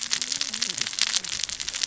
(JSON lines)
{"label": "biophony, cascading saw", "recorder": "SoundTrap 600 or HydroMoth"}